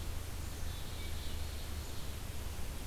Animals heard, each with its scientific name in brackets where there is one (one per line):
Black-capped Chickadee (Poecile atricapillus)